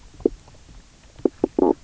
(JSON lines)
{"label": "biophony, knock croak", "recorder": "SoundTrap 300"}